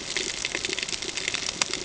{"label": "ambient", "recorder": "HydroMoth"}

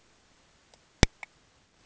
{"label": "ambient", "recorder": "HydroMoth"}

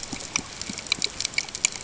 {"label": "ambient", "recorder": "HydroMoth"}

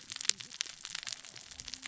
{"label": "biophony, cascading saw", "recorder": "SoundTrap 600 or HydroMoth"}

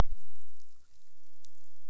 {"label": "biophony", "recorder": "SoundTrap 300"}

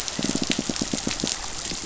{"label": "biophony, pulse", "recorder": "SoundTrap 500"}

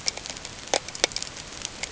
{"label": "ambient", "recorder": "HydroMoth"}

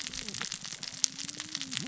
{"label": "biophony, cascading saw", "recorder": "SoundTrap 600 or HydroMoth"}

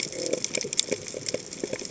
{"label": "biophony", "recorder": "HydroMoth"}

